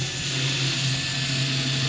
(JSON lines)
{"label": "anthrophony, boat engine", "recorder": "SoundTrap 500"}